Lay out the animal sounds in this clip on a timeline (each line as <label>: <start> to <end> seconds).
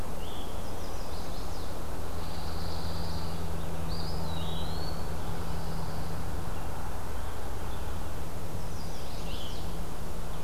Veery (Catharus fuscescens): 0.0 to 10.4 seconds
Chestnut-sided Warbler (Setophaga pensylvanica): 0.5 to 1.7 seconds
Pine Warbler (Setophaga pinus): 2.1 to 3.4 seconds
Eastern Wood-Pewee (Contopus virens): 3.8 to 5.1 seconds
Pine Warbler (Setophaga pinus): 5.3 to 6.2 seconds
Chestnut-sided Warbler (Setophaga pensylvanica): 8.5 to 9.7 seconds